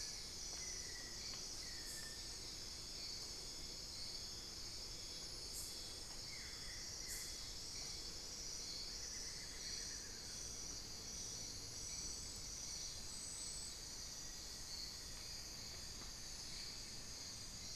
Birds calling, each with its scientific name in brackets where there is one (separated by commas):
Amazonian Barred-Woodcreeper (Dendrocolaptes certhia), unidentified bird, Buff-throated Woodcreeper (Xiphorhynchus guttatus)